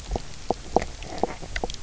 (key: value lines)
label: biophony, knock croak
recorder: SoundTrap 300